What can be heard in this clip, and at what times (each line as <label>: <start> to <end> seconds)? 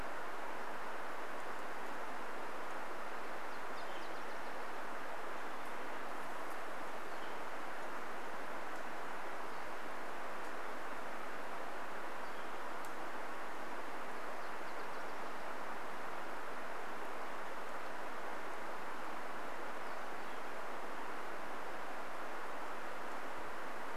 Northern Flicker call: 2 to 4 seconds
Nashville Warbler song: 2 to 6 seconds
Northern Flicker call: 6 to 8 seconds
insect buzz: 6 to 8 seconds
Pacific-slope Flycatcher call: 8 to 10 seconds
Northern Flicker call: 12 to 14 seconds
Nashville Warbler song: 14 to 16 seconds
Pacific-slope Flycatcher call: 18 to 20 seconds
Northern Flicker call: 20 to 22 seconds